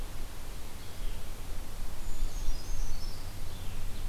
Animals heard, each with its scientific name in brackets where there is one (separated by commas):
Brown Creeper (Certhia americana), Red-eyed Vireo (Vireo olivaceus)